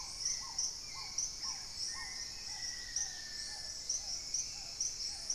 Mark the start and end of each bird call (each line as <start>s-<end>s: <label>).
0.0s-5.3s: Black-tailed Trogon (Trogon melanurus)
0.0s-5.3s: Hauxwell's Thrush (Turdus hauxwelli)
0.0s-5.3s: Paradise Tanager (Tangara chilensis)
1.7s-3.9s: Black-faced Antthrush (Formicarius analis)
2.5s-3.6s: Dusky-capped Greenlet (Pachysylvia hypoxantha)